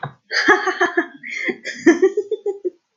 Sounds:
Laughter